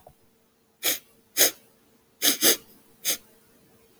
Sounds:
Sniff